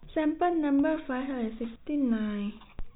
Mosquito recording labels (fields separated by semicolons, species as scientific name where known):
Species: no mosquito; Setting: cup